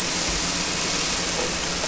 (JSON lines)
{"label": "anthrophony, boat engine", "recorder": "SoundTrap 300"}